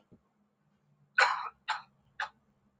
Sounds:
Sniff